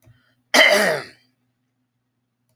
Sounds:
Throat clearing